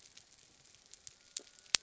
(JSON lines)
{"label": "biophony", "recorder": "SoundTrap 300"}